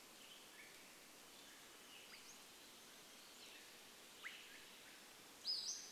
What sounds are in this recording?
Western Tanager song, Swainson's Thrush call, Pacific-slope Flycatcher call